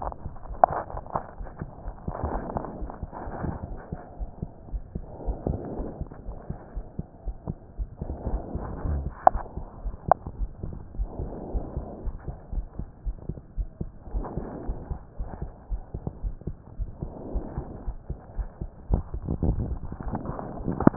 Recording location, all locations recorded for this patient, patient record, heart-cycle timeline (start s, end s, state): aortic valve (AV)
aortic valve (AV)+pulmonary valve (PV)+tricuspid valve (TV)+mitral valve (MV)
#Age: Child
#Sex: Male
#Height: 129.0 cm
#Weight: 21.0 kg
#Pregnancy status: False
#Murmur: Absent
#Murmur locations: nan
#Most audible location: nan
#Systolic murmur timing: nan
#Systolic murmur shape: nan
#Systolic murmur grading: nan
#Systolic murmur pitch: nan
#Systolic murmur quality: nan
#Diastolic murmur timing: nan
#Diastolic murmur shape: nan
#Diastolic murmur grading: nan
#Diastolic murmur pitch: nan
#Diastolic murmur quality: nan
#Outcome: Normal
#Campaign: 2015 screening campaign
0.00	4.17	unannotated
4.17	4.32	S1
4.32	4.42	systole
4.42	4.52	S2
4.52	4.72	diastole
4.72	4.84	S1
4.84	4.94	systole
4.94	5.06	S2
5.06	5.26	diastole
5.26	5.40	S1
5.40	5.48	systole
5.48	5.62	S2
5.62	5.78	diastole
5.78	5.90	S1
5.90	5.98	systole
5.98	6.08	S2
6.08	6.26	diastole
6.26	6.36	S1
6.36	6.46	systole
6.46	6.56	S2
6.56	6.76	diastole
6.76	6.84	S1
6.84	6.94	systole
6.94	7.04	S2
7.04	7.26	diastole
7.26	7.36	S1
7.36	7.48	systole
7.48	7.56	S2
7.56	7.78	diastole
7.78	7.90	S1
7.90	8.00	systole
8.00	8.08	S2
8.08	9.32	unannotated
9.32	9.46	S1
9.46	9.56	systole
9.56	9.66	S2
9.66	9.82	diastole
9.82	9.94	S1
9.94	10.04	systole
10.04	10.16	S2
10.16	10.38	diastole
10.38	10.50	S1
10.50	10.60	systole
10.60	10.74	S2
10.74	10.98	diastole
10.98	11.12	S1
11.12	11.20	systole
11.20	11.30	S2
11.30	11.52	diastole
11.52	11.64	S1
11.64	11.74	systole
11.74	11.86	S2
11.86	12.04	diastole
12.04	12.16	S1
12.16	12.26	systole
12.26	12.36	S2
12.36	12.54	diastole
12.54	12.68	S1
12.68	12.78	systole
12.78	12.86	S2
12.86	13.06	diastole
13.06	13.18	S1
13.18	13.28	systole
13.28	13.38	S2
13.38	13.58	diastole
13.58	13.70	S1
13.70	13.80	systole
13.80	13.90	S2
13.90	14.12	diastole
14.12	14.25	S1
14.25	14.36	systole
14.36	14.48	S2
14.48	14.66	diastole
14.66	14.78	S1
14.78	14.88	systole
14.88	14.98	S2
14.98	15.18	diastole
15.18	15.30	S1
15.30	15.40	systole
15.40	15.52	S2
15.52	15.69	diastole
15.69	15.82	S1
15.82	15.90	systole
15.90	16.02	S2
16.02	16.22	diastole
16.22	16.36	S1
16.36	16.45	systole
16.45	16.56	S2
16.56	16.78	diastole
16.78	16.90	S1
16.90	17.00	systole
17.00	17.10	S2
17.10	17.32	diastole
17.32	17.44	S1
17.44	17.56	systole
17.56	17.66	S2
17.66	17.86	diastole
17.86	17.98	S1
17.98	18.06	systole
18.06	18.18	S2
18.18	18.36	diastole
18.36	18.50	S1
18.50	18.60	systole
18.60	18.70	S2
18.70	18.88	diastole
18.88	19.04	S1
19.04	19.12	systole
19.12	19.24	S2
19.24	20.96	unannotated